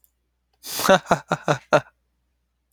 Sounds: Laughter